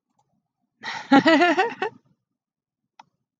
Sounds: Laughter